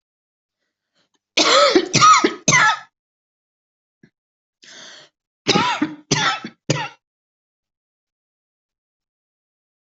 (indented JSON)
{
  "expert_labels": [
    {
      "quality": "ok",
      "cough_type": "dry",
      "dyspnea": false,
      "wheezing": false,
      "stridor": false,
      "choking": false,
      "congestion": false,
      "nothing": true,
      "diagnosis": "COVID-19",
      "severity": "mild"
    }
  ],
  "age": 40,
  "gender": "female",
  "respiratory_condition": false,
  "fever_muscle_pain": false,
  "status": "healthy"
}